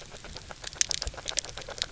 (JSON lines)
{"label": "biophony, grazing", "recorder": "SoundTrap 300"}